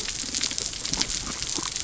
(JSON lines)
{"label": "biophony", "recorder": "SoundTrap 300"}